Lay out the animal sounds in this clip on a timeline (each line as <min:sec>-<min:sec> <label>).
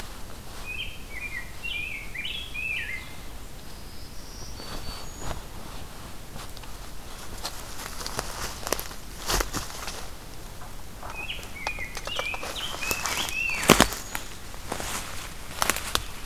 0:00.5-0:03.2 Rose-breasted Grosbeak (Pheucticus ludovicianus)
0:03.6-0:05.5 Black-throated Green Warbler (Setophaga virens)
0:11.0-0:13.7 Rose-breasted Grosbeak (Pheucticus ludovicianus)
0:12.9-0:14.4 Black-throated Green Warbler (Setophaga virens)